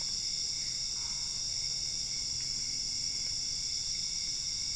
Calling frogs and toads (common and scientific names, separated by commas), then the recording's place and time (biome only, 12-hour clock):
Boana albopunctata
Cerrado, 12:45am